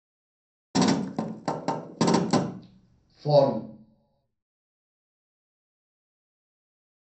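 First, gunfire can be heard. Then a voice says "Forward."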